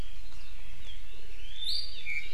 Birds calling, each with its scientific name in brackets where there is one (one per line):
Iiwi (Drepanis coccinea)